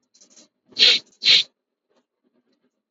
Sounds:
Sniff